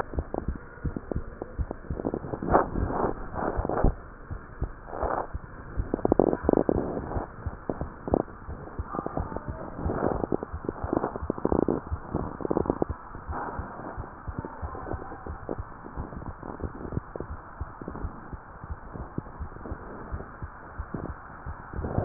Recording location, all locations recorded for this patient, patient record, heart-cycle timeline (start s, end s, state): mitral valve (MV)
aortic valve (AV)+pulmonary valve (PV)+tricuspid valve (TV)+mitral valve (MV)
#Age: Child
#Sex: Female
#Height: 131.0 cm
#Weight: 27.4 kg
#Pregnancy status: False
#Murmur: Absent
#Murmur locations: nan
#Most audible location: nan
#Systolic murmur timing: nan
#Systolic murmur shape: nan
#Systolic murmur grading: nan
#Systolic murmur pitch: nan
#Systolic murmur quality: nan
#Diastolic murmur timing: nan
#Diastolic murmur shape: nan
#Diastolic murmur grading: nan
#Diastolic murmur pitch: nan
#Diastolic murmur quality: nan
#Outcome: Abnormal
#Campaign: 2015 screening campaign
0.00	13.14	unannotated
13.14	13.26	diastole
13.26	13.38	S1
13.38	13.56	systole
13.56	13.68	S2
13.68	13.96	diastole
13.96	14.06	S1
14.06	14.26	systole
14.26	14.36	S2
14.36	14.62	diastole
14.62	14.72	S1
14.72	14.90	systole
14.90	15.02	S2
15.02	15.30	diastole
15.30	15.40	S1
15.40	15.56	systole
15.56	15.66	S2
15.66	15.96	diastole
15.96	16.08	S1
16.08	16.26	systole
16.26	16.36	S2
16.36	16.62	diastole
16.62	16.72	S1
16.72	16.90	systole
16.90	17.04	S2
17.04	17.28	diastole
17.28	17.40	S1
17.40	17.58	systole
17.58	17.68	S2
17.68	18.00	diastole
18.00	18.12	S1
18.12	18.30	systole
18.30	18.40	S2
18.40	18.68	diastole
18.68	18.78	S1
18.78	18.96	systole
18.96	19.08	S2
19.08	19.38	diastole
19.38	19.52	S1
19.52	19.70	systole
19.70	19.80	S2
19.80	20.10	diastole
20.10	20.24	S1
20.24	20.42	systole
20.42	20.52	S2
20.52	20.78	diastole
20.78	20.88	S1
20.88	21.08	systole
21.08	21.18	S2
21.18	21.46	diastole
21.46	21.58	S1
21.58	21.68	systole
21.68	22.05	unannotated